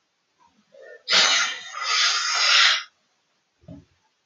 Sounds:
Sneeze